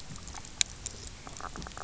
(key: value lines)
label: biophony, knock croak
recorder: SoundTrap 300